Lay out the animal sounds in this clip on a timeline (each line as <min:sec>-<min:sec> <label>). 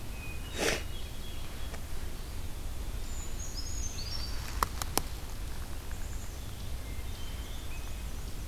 0:00.0-0:00.8 Hermit Thrush (Catharus guttatus)
0:02.0-0:03.5 Eastern Wood-Pewee (Contopus virens)
0:02.9-0:04.6 Brown Creeper (Certhia americana)
0:05.8-0:06.5 Black-capped Chickadee (Poecile atricapillus)
0:06.7-0:08.1 Hermit Thrush (Catharus guttatus)
0:06.9-0:08.5 Black-and-white Warbler (Mniotilta varia)